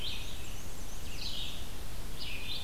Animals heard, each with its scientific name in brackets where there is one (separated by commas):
Black-and-white Warbler (Mniotilta varia), Red-eyed Vireo (Vireo olivaceus)